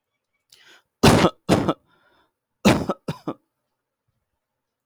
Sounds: Cough